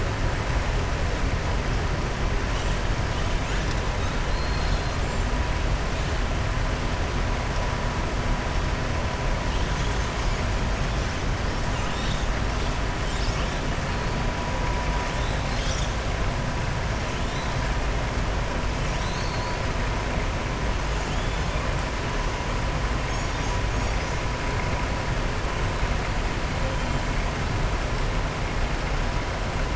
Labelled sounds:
4.2	5.0	killer whale, southern resident, 3.4 to 5.1 kHz
21.0	21.6	killer whale, southern resident, 2.9 to 4.4 kHz

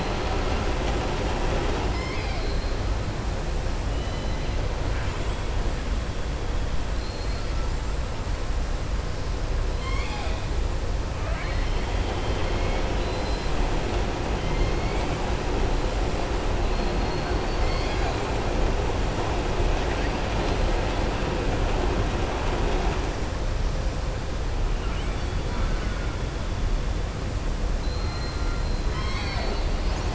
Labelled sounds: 1.8	2.3	killer whale, southern resident, 2.0 to 5.4 kHz
6.9	7.6	killer whale, southern resident, 4.0 to 5.2 kHz
9.7	10.4	killer whale, southern resident, 0.82 to 7.5 kHz
12.9	13.5	killer whale, southern resident, 2.7 to 5.1 kHz
28.6	29.7	killer whale, southern resident, 1.0 to 5.6 kHz

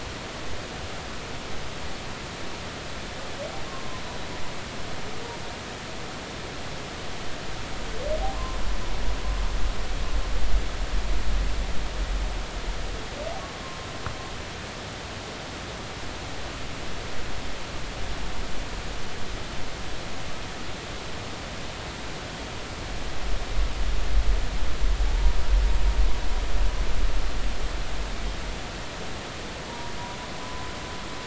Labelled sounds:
3.7	4.0	humpback whale, 0.96 to 1.1 kHz
25.1	25.4	humpback whale, 0.80 to 0.99 kHz
29.7	29.9	humpback whale, 0.90 to 1.0 kHz
30.4	30.7	humpback whale, 0.96 to 1.0 kHz

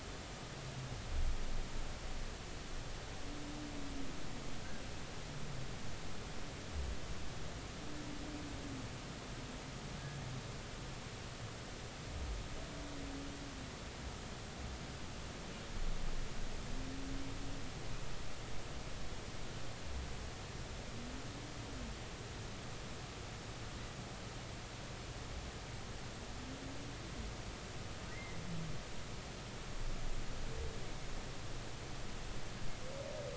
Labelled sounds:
28.1	28.4	humpback whale, 1.9 to 2.2 kHz

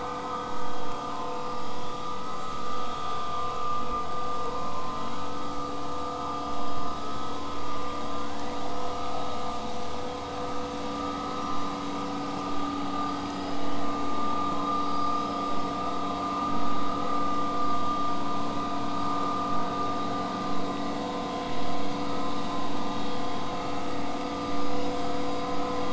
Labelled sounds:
2.3	3.5	killer whale, southern resident, 7.1 to 8.0 kHz
9.6	10.0	killer whale, southern resident, whistle, 5.6 to 8.0 kHz
10.6	11.1	killer whale, southern resident, whistle, 6.0 to 8.0 kHz
11.4	11.8	killer whale, southern resident, whistle, 5.5 to 8.0 kHz
12.8	14.2	killer whale, southern resident, 4.4 to 8.0 kHz
14.7	15.9	killer whale, southern resident, 4.5 to 8.0 kHz
16.0	21.0	vessel noise, 0 to 8.0 kHz
24.1	25.5	killer whale, southern resident, 7.8 to 8.0 kHz

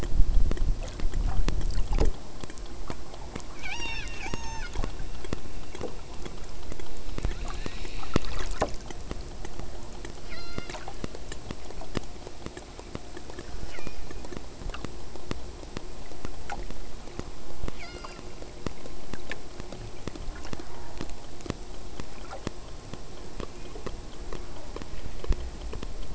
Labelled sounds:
3.5	4.8	killer whale, southern Alaska resident, 0.29 to 8.0 kHz
10.2	10.8	killer whale, southern Alaska resident, 0.25 to 6.5 kHz
13.3	14.3	killer whale, southern Alaska resident, 0.82 to 6.6 kHz
17.8	18.3	killer whale, southern Alaska resident, 1.1 to 7.4 kHz
20.6	21.0	killer whale, southern Alaska resident, 0.77 to 1.6 kHz
23.4	23.9	killer whale, southern Alaska resident, 1.8 to 3.1 kHz

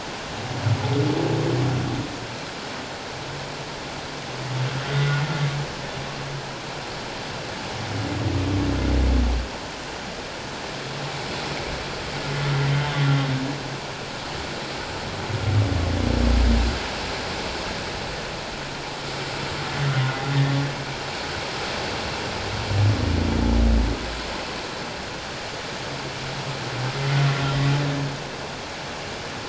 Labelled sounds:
4.9	5.2	humpback whale, 1.4 to 1.5 kHz
26.9	27.2	humpback whale, 1.9 to 2.2 kHz

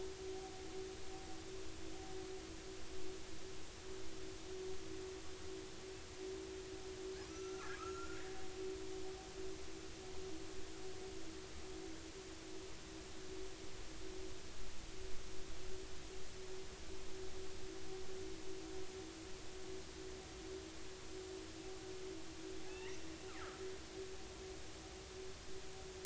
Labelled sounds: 7.3	8.2	killer whale, northern resident, 1.1 to 6.0 kHz
22.7	23.0	killer whale, northern resident, 1.6 to 2.2 kHz

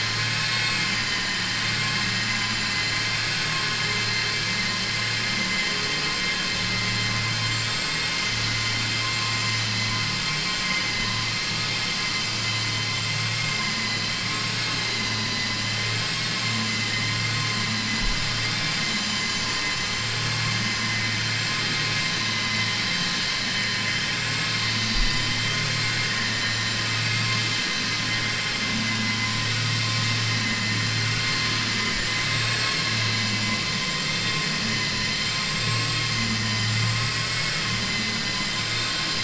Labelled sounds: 37.2	37.7	vessel noise, 0.59 to 2.8 kHz

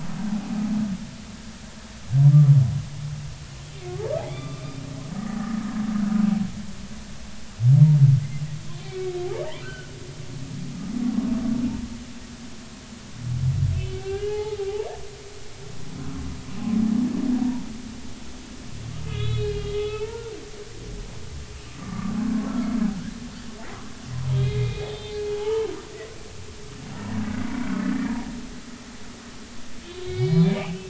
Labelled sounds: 4.2	4.6	humpback whale, 1.1 to 2.4 kHz
8.7	9.9	humpback whale, 1.2 to 3.5 kHz
13.8	14.6	humpback whale, 0.80 to 4.4 kHz
19.0	20.1	humpback whale, 1.2 to 4.3 kHz
21.7	22.8	humpback whale, 1.1 to 1.4 kHz
24.3	25.7	humpback whale, 0.80 to 4.2 kHz
26.9	28.2	humpback whale, 1.6 to 1.9 kHz
30.0	30.8	humpback whale, 2.1 to 5.0 kHz

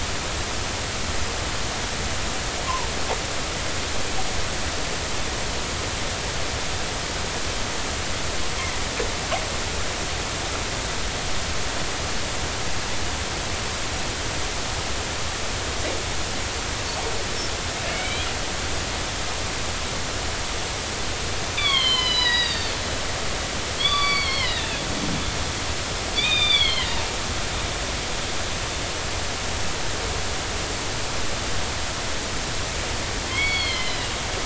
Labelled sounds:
2.6	2.9	killer whale, northern resident, G clan, 0.86 to 1.2 kHz
17.9	18.3	killer whale, northern resident, G clan, 2.1 to 2.5 kHz
21.6	22.9	killer whale, northern resident, G clan, 0.90 to 5.2 kHz
23.8	24.8	killer whale, northern resident, G clan, 0.99 to 4.7 kHz
26.1	27.0	killer whale, northern resident, G clan, 1.8 to 5.0 kHz
33.3	34.1	killer whale, northern resident, G clan, 2.0 to 4.5 kHz

